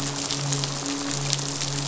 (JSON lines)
{"label": "biophony, midshipman", "recorder": "SoundTrap 500"}